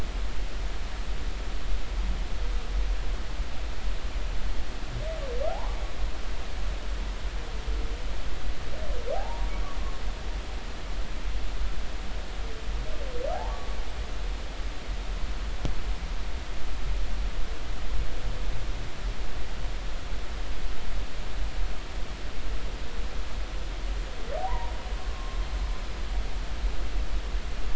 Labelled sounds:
5.5	5.8	humpback whale, 0.80 to 1.2 kHz
9.1	9.5	humpback whale, 0.80 to 1.0 kHz
13.5	13.8	humpback whale, 1.0 to 1.2 kHz
24.5	24.7	humpback whale, 0.86 to 1.1 kHz
25.1	25.4	humpback whale, 1.0 to 1.1 kHz

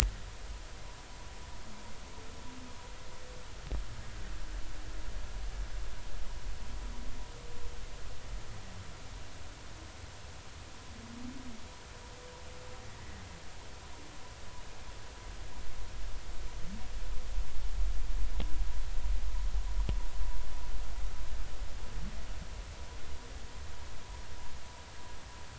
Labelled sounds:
12.8	13.2	humpback whale, 1.9 to 2.0 kHz

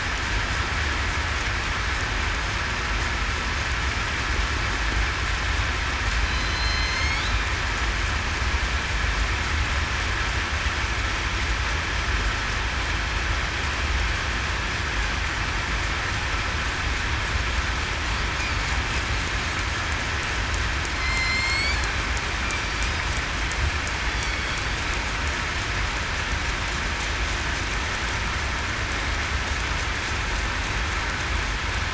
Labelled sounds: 6.2	7.2	killer whale, southern resident, 2.0 to 6.6 kHz
21.0	21.7	killer whale, southern resident, 2.0 to 5.4 kHz

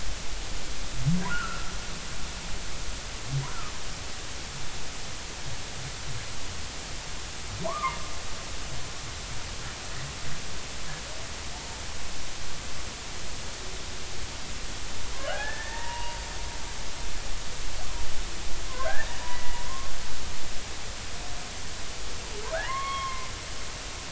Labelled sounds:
1.3	1.7	humpback whale, 1.2 to 1.6 kHz
7.7	8.0	humpback whale, 0.80 to 1.3 kHz
11.5	11.8	humpback whale, 0.80 to 0.96 kHz
15.3	16.2	humpback whale, 0.86 to 2.9 kHz
18.7	19.9	humpback whale, 0.99 to 2.0 kHz
22.5	23.3	humpback whale, 0.80 to 3.4 kHz

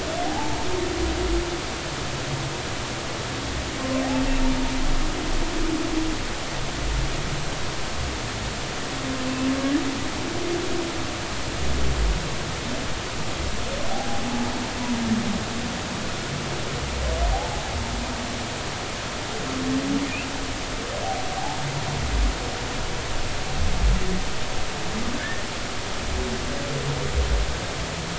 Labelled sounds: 0.3	0.6	humpback whale, 0.80 to 0.96 kHz
13.9	14.2	humpback whale, 0.80 to 0.86 kHz
17.3	17.6	humpback whale, 0.80 to 0.93 kHz
25.2	25.4	humpback whale, 1.5 to 1.9 kHz

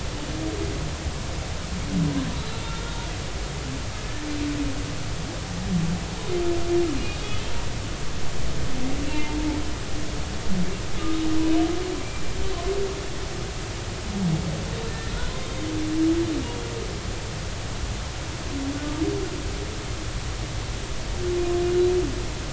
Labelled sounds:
2.7	3.1	humpback whale, 3.6 to 3.8 kHz
12.0	12.2	humpback whale, 2.3 to 2.4 kHz
14.9	15.1	humpback whale, 1.7 to 1.9 kHz

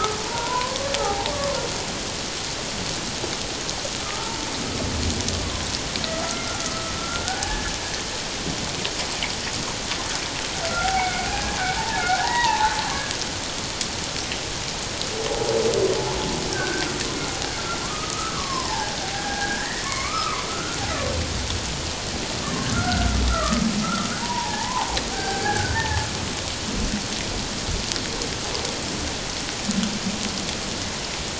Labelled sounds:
1.3	1.6	humpback whale, 1.0 to 1.2 kHz
4.0	4.3	humpback whale, 1.2 to 1.4 kHz
6.1	7.8	humpback whale, 0.78 to 1.8 kHz
10.7	12.7	humpback whale, 0.78 to 2.3 kHz
16.5	16.9	humpback whale, 1.4 to 1.7 kHz
17.8	20.8	humpback whale, 0.78 to 2.5 kHz
22.7	23.6	humpback whale, 1.1 to 1.6 kHz
24.2	26.1	humpback whale, 0.78 to 1.9 kHz

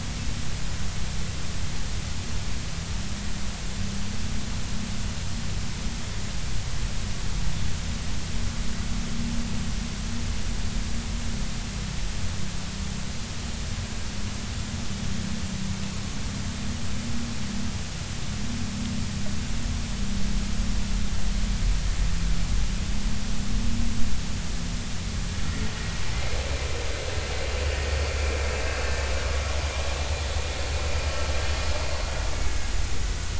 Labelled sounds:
25.5	25.7	vessel noise, 1.8 to 2.0 kHz
32.3	32.5	vessel noise, 2.2 to 2.3 kHz

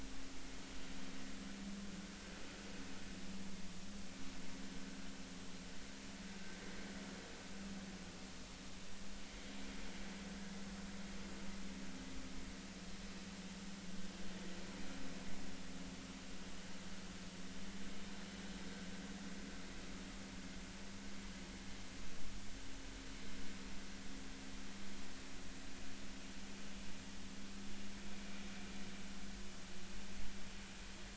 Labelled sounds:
10.3	10.6	vessel noise, 1.6 to 1.7 kHz

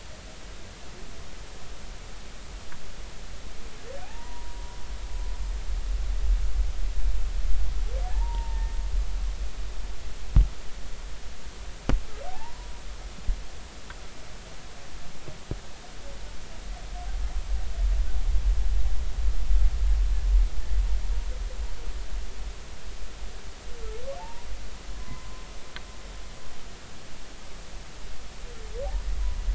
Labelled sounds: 4.0	4.6	humpback whale, 0.80 to 1.0 kHz
8.0	8.7	humpback whale, 0.80 to 1.9 kHz
12.3	12.7	humpback whale, 0.80 to 1.1 kHz
24.2	25.5	humpback whale, 0.83 to 1.1 kHz

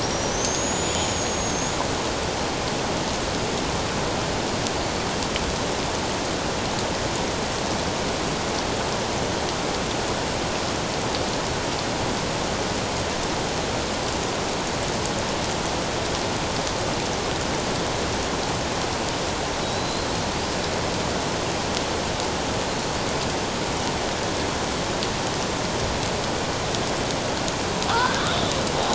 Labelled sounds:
0.0	1.8	killer whale, Bigg's (transient), 5.5 to 7.0 kHz
19.6	20.1	killer whale, Bigg's (transient), 3.8 to 4.2 kHz
27.9	28.2	killer whale, Bigg's (transient), 1.1 to 1.7 kHz

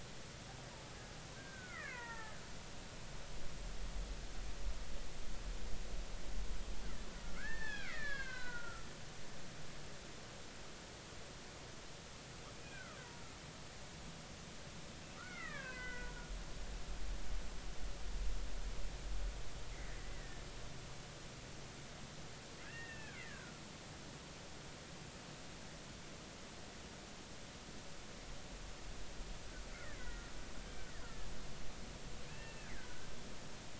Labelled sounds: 1.3	2.4	killer whale, Bigg's (transient), 0.83 to 2.8 kHz
7.2	8.9	killer whale, Bigg's (transient), 0.93 to 4.6 kHz
12.6	13.0	killer whale, Bigg's (transient), 1.2 to 1.7 kHz
15.2	16.3	killer whale, Bigg's (transient), 0.96 to 3.0 kHz
19.7	20.4	killer whale, Bigg's (transient), 1.7 to 2.2 kHz
22.6	23.6	killer whale, Bigg's (transient), 1.3 to 2.8 kHz
29.7	30.3	killer whale, Bigg's (transient), 1.3 to 2.3 kHz
32.3	32.7	killer whale, Bigg's (transient), 1.6 to 2.8 kHz

